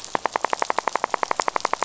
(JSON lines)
{"label": "biophony, rattle", "recorder": "SoundTrap 500"}